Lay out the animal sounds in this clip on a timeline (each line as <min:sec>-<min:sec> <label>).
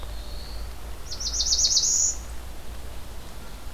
0:00.0-0:02.4 Black-throated Blue Warbler (Setophaga caerulescens)